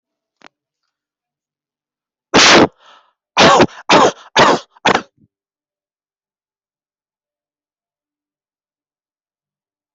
{"expert_labels": [{"quality": "poor", "cough_type": "unknown", "dyspnea": false, "wheezing": false, "stridor": false, "choking": false, "congestion": false, "nothing": true, "diagnosis": "healthy cough", "severity": "pseudocough/healthy cough"}], "age": 30, "gender": "female", "respiratory_condition": false, "fever_muscle_pain": false, "status": "healthy"}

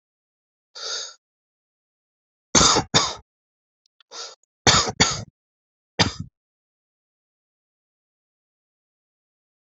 {"expert_labels": [{"quality": "good", "cough_type": "dry", "dyspnea": false, "wheezing": false, "stridor": false, "choking": false, "congestion": false, "nothing": true, "diagnosis": "COVID-19", "severity": "mild"}]}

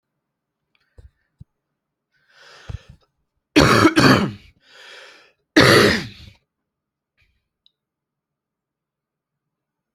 {"expert_labels": [{"quality": "good", "cough_type": "wet", "dyspnea": false, "wheezing": false, "stridor": false, "choking": false, "congestion": false, "nothing": true, "diagnosis": "lower respiratory tract infection", "severity": "mild"}], "age": 39, "gender": "male", "respiratory_condition": false, "fever_muscle_pain": false, "status": "symptomatic"}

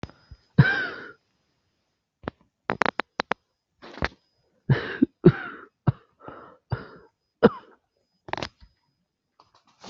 {"expert_labels": [{"quality": "poor", "cough_type": "unknown", "dyspnea": false, "wheezing": true, "stridor": false, "choking": false, "congestion": false, "nothing": false, "diagnosis": "COVID-19", "severity": "mild"}, {"quality": "ok", "cough_type": "dry", "dyspnea": false, "wheezing": false, "stridor": false, "choking": false, "congestion": false, "nothing": true, "diagnosis": "upper respiratory tract infection", "severity": "mild"}, {"quality": "good", "cough_type": "dry", "dyspnea": false, "wheezing": false, "stridor": false, "choking": false, "congestion": false, "nothing": true, "diagnosis": "upper respiratory tract infection", "severity": "mild"}, {"quality": "good", "cough_type": "dry", "dyspnea": false, "wheezing": false, "stridor": false, "choking": false, "congestion": false, "nothing": true, "diagnosis": "upper respiratory tract infection", "severity": "mild"}], "age": 27, "gender": "female", "respiratory_condition": false, "fever_muscle_pain": true, "status": "COVID-19"}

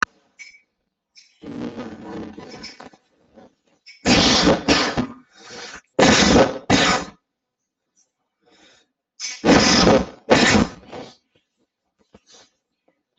{"expert_labels": [{"quality": "poor", "cough_type": "unknown", "dyspnea": false, "wheezing": false, "stridor": false, "choking": false, "congestion": false, "nothing": false, "severity": "unknown"}], "age": 50, "gender": "male", "respiratory_condition": false, "fever_muscle_pain": true, "status": "symptomatic"}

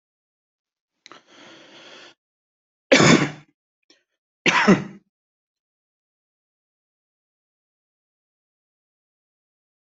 {"expert_labels": [{"quality": "good", "cough_type": "dry", "dyspnea": false, "wheezing": false, "stridor": false, "choking": false, "congestion": false, "nothing": true, "diagnosis": "healthy cough", "severity": "pseudocough/healthy cough"}], "age": 43, "gender": "male", "respiratory_condition": true, "fever_muscle_pain": false, "status": "healthy"}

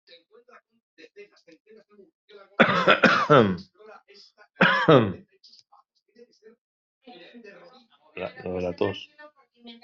{"expert_labels": [{"quality": "ok", "cough_type": "unknown", "dyspnea": false, "wheezing": false, "stridor": false, "choking": false, "congestion": false, "nothing": true, "diagnosis": "healthy cough", "severity": "pseudocough/healthy cough"}], "gender": "male", "respiratory_condition": false, "fever_muscle_pain": false, "status": "symptomatic"}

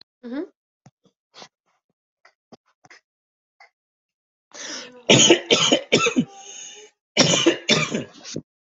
{"expert_labels": [{"quality": "ok", "cough_type": "dry", "dyspnea": false, "wheezing": false, "stridor": false, "choking": false, "congestion": false, "nothing": true, "diagnosis": "COVID-19", "severity": "mild"}, {"quality": "ok", "cough_type": "dry", "dyspnea": false, "wheezing": true, "stridor": false, "choking": false, "congestion": false, "nothing": false, "diagnosis": "lower respiratory tract infection", "severity": "mild"}, {"quality": "good", "cough_type": "wet", "dyspnea": false, "wheezing": false, "stridor": false, "choking": false, "congestion": false, "nothing": true, "diagnosis": "lower respiratory tract infection", "severity": "mild"}, {"quality": "good", "cough_type": "dry", "dyspnea": false, "wheezing": false, "stridor": false, "choking": false, "congestion": false, "nothing": true, "diagnosis": "lower respiratory tract infection", "severity": "mild"}], "age": 44, "gender": "male", "respiratory_condition": false, "fever_muscle_pain": false, "status": "healthy"}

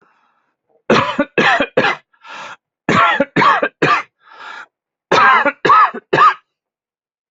{"expert_labels": [{"quality": "good", "cough_type": "dry", "dyspnea": true, "wheezing": false, "stridor": false, "choking": false, "congestion": false, "nothing": false, "diagnosis": "obstructive lung disease", "severity": "mild"}], "age": 38, "gender": "male", "respiratory_condition": false, "fever_muscle_pain": false, "status": "healthy"}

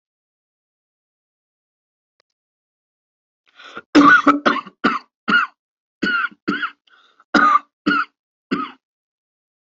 {"expert_labels": [{"quality": "good", "cough_type": "dry", "dyspnea": false, "wheezing": false, "stridor": false, "choking": false, "congestion": false, "nothing": true, "diagnosis": "COVID-19", "severity": "severe"}], "age": 35, "gender": "male", "respiratory_condition": false, "fever_muscle_pain": false, "status": "symptomatic"}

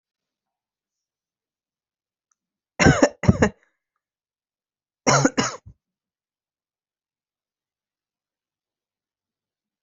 {"expert_labels": [{"quality": "good", "cough_type": "dry", "dyspnea": false, "wheezing": false, "stridor": false, "choking": false, "congestion": false, "nothing": true, "diagnosis": "healthy cough", "severity": "pseudocough/healthy cough"}], "age": 34, "gender": "female", "respiratory_condition": false, "fever_muscle_pain": false, "status": "healthy"}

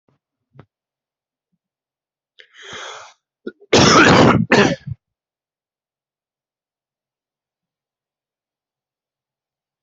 {"expert_labels": [{"quality": "good", "cough_type": "wet", "dyspnea": false, "wheezing": false, "stridor": false, "choking": false, "congestion": false, "nothing": true, "diagnosis": "lower respiratory tract infection", "severity": "mild"}], "age": 26, "gender": "male", "respiratory_condition": false, "fever_muscle_pain": false, "status": "symptomatic"}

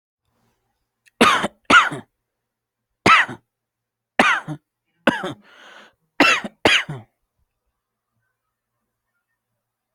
{"expert_labels": [{"quality": "ok", "cough_type": "dry", "dyspnea": false, "wheezing": false, "stridor": false, "choking": false, "congestion": false, "nothing": true, "diagnosis": "COVID-19", "severity": "severe"}], "age": 32, "gender": "male", "respiratory_condition": false, "fever_muscle_pain": false, "status": "COVID-19"}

